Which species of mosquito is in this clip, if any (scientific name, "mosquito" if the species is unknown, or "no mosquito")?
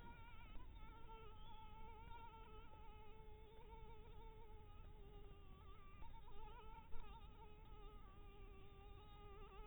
Anopheles dirus